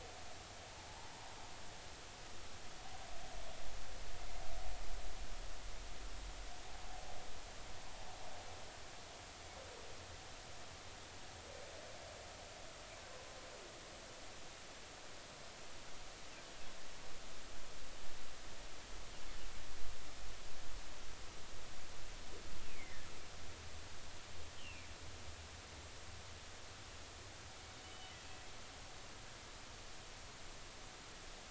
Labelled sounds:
22.6	23.0	humpback whale, 2.0 to 2.8 kHz
24.6	24.9	humpback whale, 2.1 to 3.3 kHz
27.8	28.2	humpback whale, 2.9 to 3.0 kHz

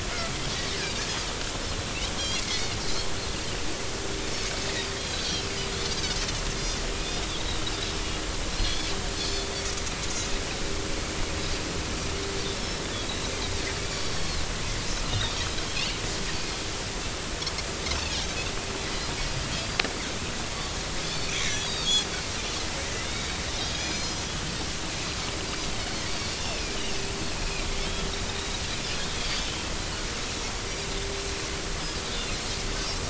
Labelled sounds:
2.2	3.1	Pacific white-sided dolphin, 3.1 to 4.6 kHz
8.5	9.5	Pacific white-sided dolphin, 3.1 to 4.5 kHz
12.5	12.8	Pacific white-sided dolphin, 5.2 to 5.4 kHz
13.9	14.4	Pacific white-sided dolphin, 3.9 to 5.7 kHz
15.1	15.4	Pacific white-sided dolphin, 3.5 to 3.9 kHz
21.2	21.9	Pacific white-sided dolphin, 2.1 to 4.8 kHz
23.0	23.3	Pacific white-sided dolphin, 3.5 to 3.9 kHz
23.6	24.2	Pacific white-sided dolphin, 2.3 to 6.8 kHz
26.4	28.1	Pacific white-sided dolphin, 2.3 to 3.4 kHz
29.2	29.5	Pacific white-sided dolphin, 4.6 to 4.8 kHz

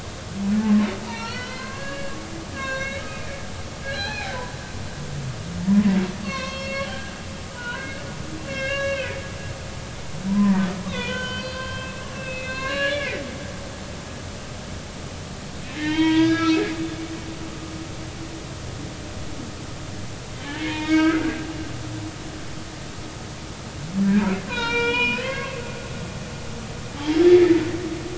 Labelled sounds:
1.0	2.2	humpback whale, 0.86 to 4.5 kHz
2.5	3.0	humpback whale, 1.0 to 6.1 kHz
3.8	4.3	humpback whale, 0.80 to 4.3 kHz
5.6	6.9	humpback whale, 0.83 to 5.5 kHz
7.5	9.2	humpback whale, 0.90 to 5.6 kHz
10.3	13.2	humpback whale, 0.90 to 5.7 kHz
15.7	16.7	humpback whale, 0.83 to 4.7 kHz
20.6	21.3	humpback whale, 1.2 to 4.8 kHz
24.5	25.6	humpback whale, 0.86 to 5.7 kHz
27.2	27.6	humpback whale, 2.0 to 3.5 kHz

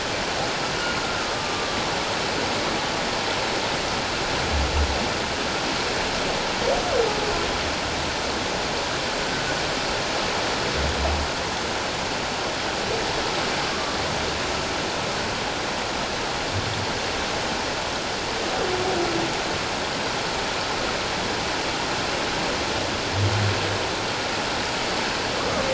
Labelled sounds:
1.2	1.8	humpback whale, 1.1 to 1.3 kHz
13.7	14.0	humpback whale, 1.1 to 1.2 kHz

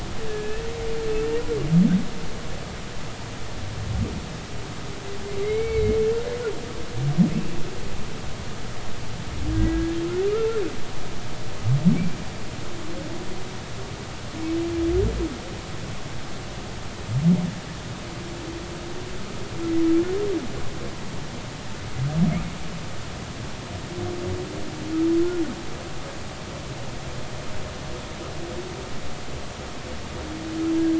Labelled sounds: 0.3	0.6	humpback whale, 1.7 to 1.8 kHz
5.4	6.0	humpback whale, 2.0 to 2.3 kHz
9.5	10.6	humpback whale, 1.2 to 1.7 kHz

